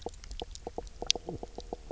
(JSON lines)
{"label": "biophony, knock croak", "recorder": "SoundTrap 300"}